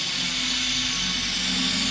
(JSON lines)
{"label": "anthrophony, boat engine", "recorder": "SoundTrap 500"}